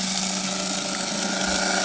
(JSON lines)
{"label": "anthrophony, boat engine", "recorder": "HydroMoth"}